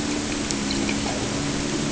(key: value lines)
label: anthrophony, boat engine
recorder: HydroMoth